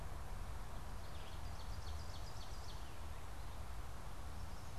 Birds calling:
Ovenbird (Seiurus aurocapilla)

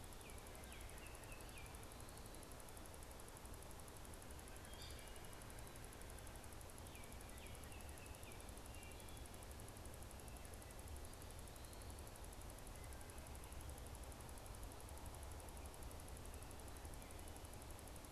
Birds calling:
Baltimore Oriole (Icterus galbula)
unidentified bird
Wood Thrush (Hylocichla mustelina)

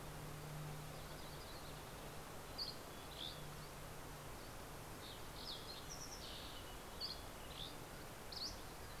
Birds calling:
Mountain Chickadee (Poecile gambeli)
Yellow-rumped Warbler (Setophaga coronata)
Fox Sparrow (Passerella iliaca)
Dusky Flycatcher (Empidonax oberholseri)

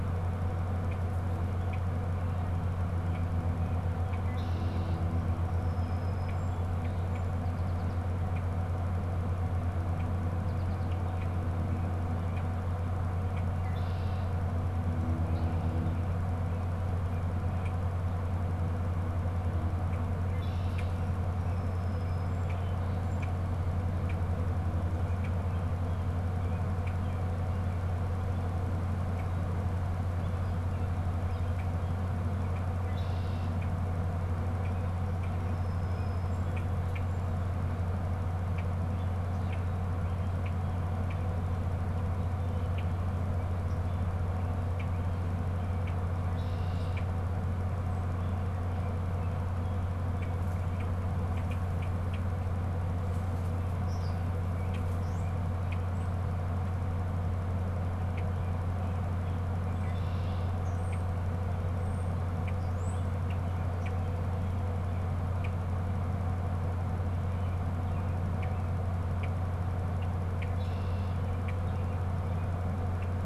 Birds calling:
American Goldfinch (Spinus tristis)
Red-winged Blackbird (Agelaius phoeniceus)
European Starling (Sturnus vulgaris)
Song Sparrow (Melospiza melodia)

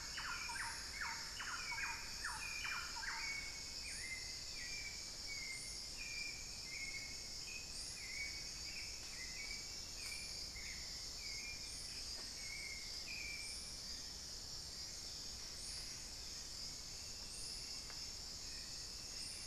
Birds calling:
Thrush-like Wren (Campylorhynchus turdinus)
Buff-breasted Wren (Cantorchilus leucotis)
Hauxwell's Thrush (Turdus hauxwelli)
unidentified bird

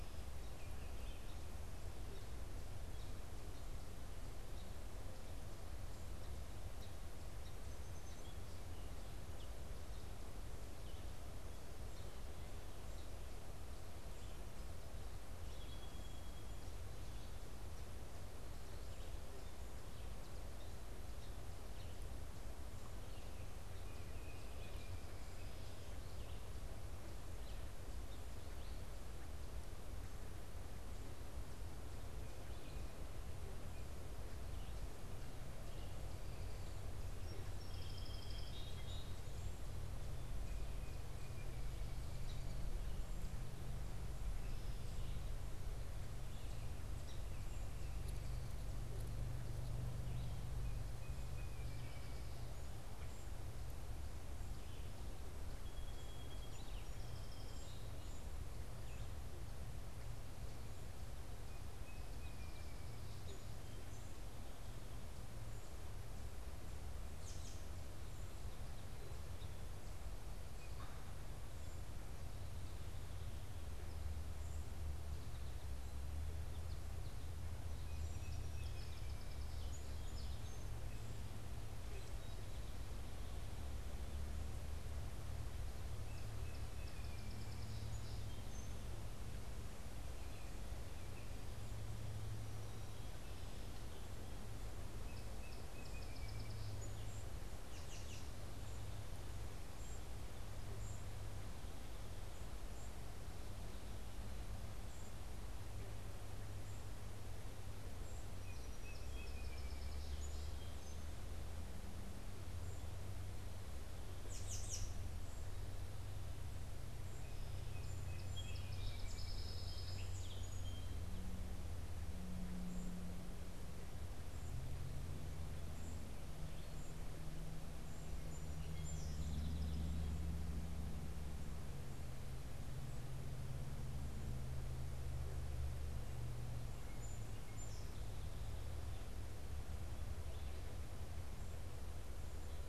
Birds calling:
Song Sparrow (Melospiza melodia)
Baltimore Oriole (Icterus galbula)
American Robin (Turdus migratorius)

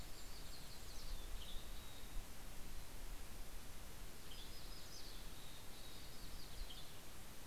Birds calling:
Golden-crowned Kinglet (Regulus satrapa)
Western Tanager (Piranga ludoviciana)
Mountain Chickadee (Poecile gambeli)

